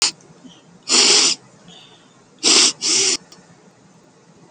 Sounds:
Sniff